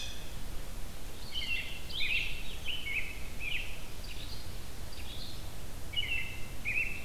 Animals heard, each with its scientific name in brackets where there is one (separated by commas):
American Robin (Turdus migratorius), Red-eyed Vireo (Vireo olivaceus)